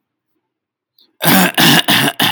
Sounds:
Throat clearing